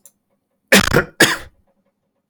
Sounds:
Cough